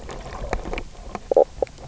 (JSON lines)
{"label": "biophony, knock croak", "recorder": "SoundTrap 300"}